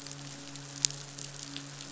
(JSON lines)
{"label": "biophony, midshipman", "recorder": "SoundTrap 500"}